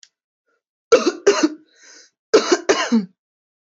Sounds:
Cough